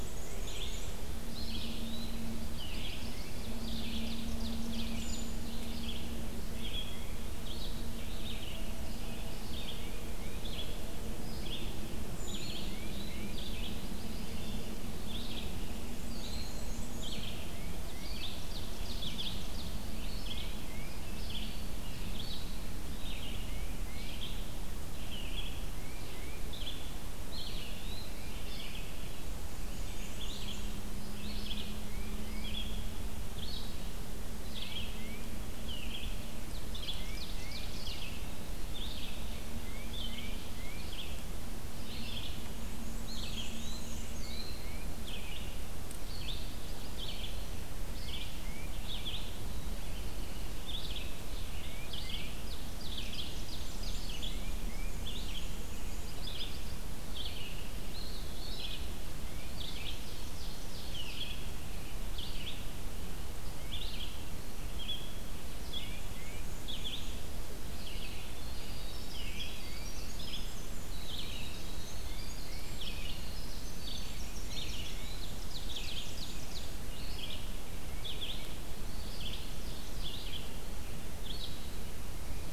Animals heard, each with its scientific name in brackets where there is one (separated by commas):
Red-eyed Vireo (Vireo olivaceus), Brown Creeper (Certhia americana), Yellow-rumped Warbler (Setophaga coronata), Eastern Wood-Pewee (Contopus virens), Black-throated Blue Warbler (Setophaga caerulescens), Ovenbird (Seiurus aurocapilla), Tufted Titmouse (Baeolophus bicolor), Black-and-white Warbler (Mniotilta varia), Winter Wren (Troglodytes hiemalis)